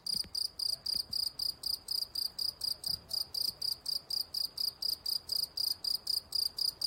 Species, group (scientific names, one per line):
Gryllus campestris
Orthoptera